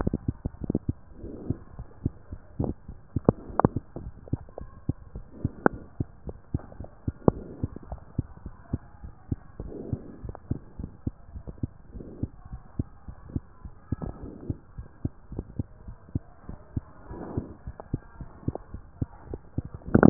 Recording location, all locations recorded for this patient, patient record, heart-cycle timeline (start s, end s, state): mitral valve (MV)
aortic valve (AV)+pulmonary valve (PV)+tricuspid valve (TV)+mitral valve (MV)
#Age: Child
#Sex: Female
#Height: 100.0 cm
#Weight: 19.8 kg
#Pregnancy status: False
#Murmur: Absent
#Murmur locations: nan
#Most audible location: nan
#Systolic murmur timing: nan
#Systolic murmur shape: nan
#Systolic murmur grading: nan
#Systolic murmur pitch: nan
#Systolic murmur quality: nan
#Diastolic murmur timing: nan
#Diastolic murmur shape: nan
#Diastolic murmur grading: nan
#Diastolic murmur pitch: nan
#Diastolic murmur quality: nan
#Outcome: Normal
#Campaign: 2015 screening campaign
0.00	3.83	unannotated
3.83	3.96	diastole
3.96	4.12	S1
4.12	4.28	systole
4.28	4.42	S2
4.42	4.60	diastole
4.60	4.70	S1
4.70	4.88	systole
4.88	4.98	S2
4.98	5.14	diastole
5.14	5.24	S1
5.24	5.42	systole
5.42	5.52	S2
5.52	5.66	diastole
5.66	5.80	S1
5.80	5.96	systole
5.96	6.08	S2
6.08	6.26	diastole
6.26	6.36	S1
6.36	6.50	systole
6.50	6.62	S2
6.62	6.78	diastole
6.78	6.88	S1
6.88	7.04	systole
7.04	7.14	S2
7.14	7.28	diastole
7.28	7.44	S1
7.44	7.60	systole
7.60	7.72	S2
7.72	7.88	diastole
7.88	8.00	S1
8.00	8.14	systole
8.14	8.28	S2
8.28	8.44	diastole
8.44	8.54	S1
8.54	8.72	systole
8.72	8.82	S2
8.82	9.02	diastole
9.02	9.12	S1
9.12	9.28	systole
9.28	9.42	S2
9.42	9.60	diastole
9.60	9.74	S1
9.74	9.90	systole
9.90	10.02	S2
10.02	10.22	diastole
10.22	10.36	S1
10.36	10.50	systole
10.50	10.62	S2
10.62	10.80	diastole
10.80	10.92	S1
10.92	11.06	systole
11.06	11.16	S2
11.16	11.34	diastole
11.34	11.44	S1
11.44	11.62	systole
11.62	11.74	S2
11.74	11.94	diastole
11.94	12.06	S1
12.06	12.20	systole
12.20	12.32	S2
12.32	12.52	diastole
12.52	12.62	S1
12.62	12.78	systole
12.78	12.90	S2
12.90	13.08	diastole
13.08	13.16	S1
13.16	13.34	systole
13.34	13.46	S2
13.46	13.64	diastole
13.64	13.72	S1
13.72	13.88	systole
13.88	14.00	S2
14.00	14.20	diastole
14.20	14.34	S1
14.34	14.48	systole
14.48	14.60	S2
14.60	14.78	diastole
14.78	14.86	S1
14.86	15.00	systole
15.00	15.12	S2
15.12	15.32	diastole
15.32	15.46	S1
15.46	15.56	systole
15.56	15.66	S2
15.66	15.86	diastole
15.86	15.96	S1
15.96	16.12	systole
16.12	16.26	S2
16.26	16.48	diastole
16.48	16.58	S1
16.58	16.74	systole
16.74	16.88	S2
16.88	17.08	diastole
17.08	17.22	S1
17.22	17.34	systole
17.34	17.48	S2
17.48	17.66	diastole
17.66	17.76	S1
17.76	17.90	systole
17.90	18.00	S2
18.00	18.18	diastole
18.18	18.28	S1
18.28	18.35	systole
18.35	20.10	unannotated